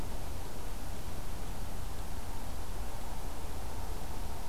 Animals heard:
forest ambience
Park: Acadia National Park